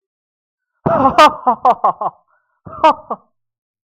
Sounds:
Laughter